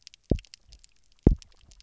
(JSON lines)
{"label": "biophony, double pulse", "recorder": "SoundTrap 300"}